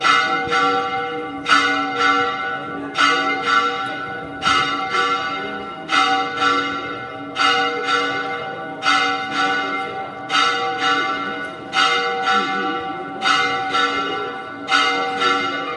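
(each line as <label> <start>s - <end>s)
A church bell is ringing in a steady pattern. 0.0s - 15.8s
People are chatting quietly in the background. 0.0s - 15.8s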